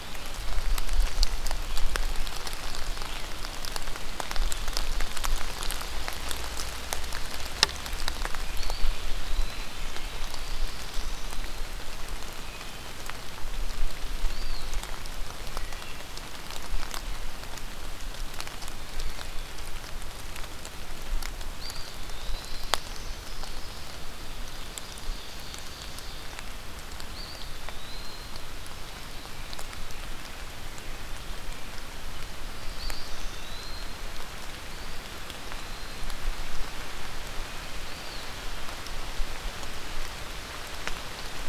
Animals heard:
Eastern Wood-Pewee (Contopus virens), Black-throated Blue Warbler (Setophaga caerulescens), Ovenbird (Seiurus aurocapilla)

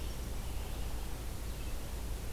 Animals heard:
American Robin (Turdus migratorius), Red-eyed Vireo (Vireo olivaceus)

